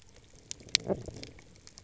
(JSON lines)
{"label": "biophony", "recorder": "SoundTrap 300"}